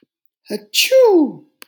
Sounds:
Sneeze